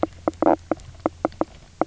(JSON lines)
{"label": "biophony, knock croak", "recorder": "SoundTrap 300"}